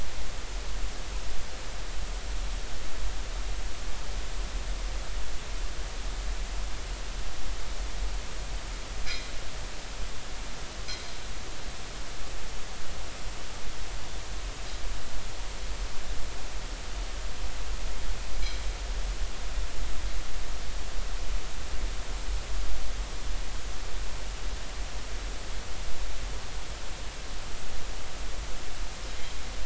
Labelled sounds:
9.0	9.3	anchor noise, 2.0 to 2.5 kHz

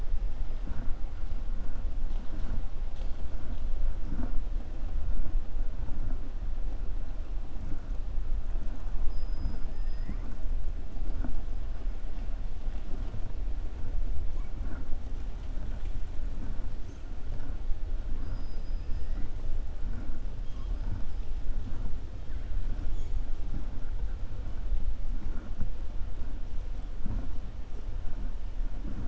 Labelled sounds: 18.1	19.2	killer whale, 4.0 to 5.7 kHz

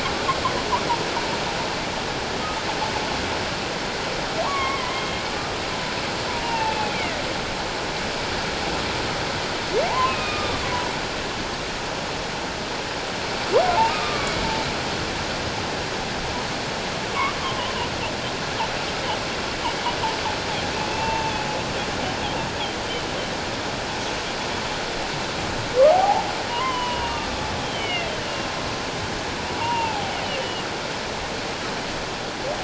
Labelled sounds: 4.4	5.2	humpback whale, 0.88 to 3.2 kHz
6.4	7.2	humpback whale, 0.81 to 2.9 kHz
9.9	10.6	humpback whale, 0.78 to 2.7 kHz
13.9	14.3	humpback whale, 1.1 to 1.3 kHz
17.4	17.7	humpback whale, 0.94 to 1.2 kHz
20.9	21.3	humpback whale, 0.84 to 2.8 kHz
25.9	27.3	humpback whale, 0.78 to 3.2 kHz
27.6	28.5	humpback whale, 2.0 to 3.2 kHz
29.6	30.7	humpback whale, 0.78 to 3.1 kHz

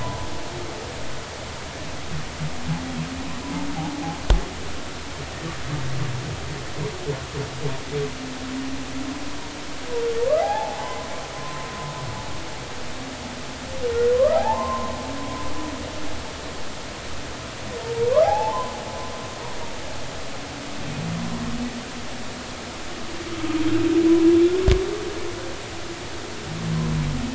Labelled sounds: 10.4	11.7	humpback whale, 0.80 to 1.1 kHz
14.1	14.9	humpback whale, 0.80 to 1.4 kHz
18.2	18.7	humpback whale, 0.80 to 1.1 kHz

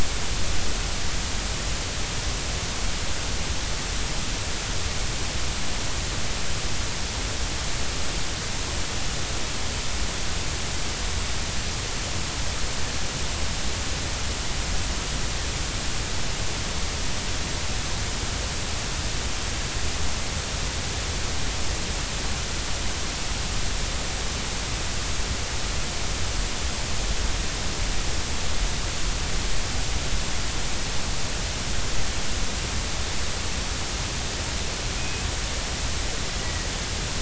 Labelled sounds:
35.0	35.3	killer whale, Bigg's (transient), 2.4 to 2.7 kHz
36.4	36.7	killer whale, Bigg's (transient), 1.8 to 2.0 kHz

